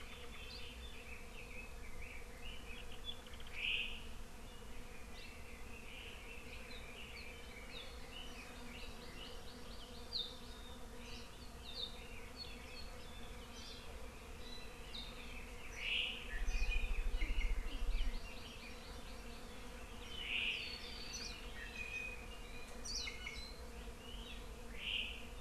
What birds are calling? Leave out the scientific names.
Apapane, Red-billed Leiothrix, Hawaii Amakihi, Warbling White-eye, Iiwi